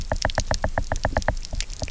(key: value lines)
label: biophony, knock
recorder: SoundTrap 300